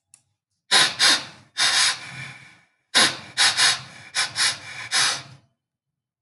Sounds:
Sniff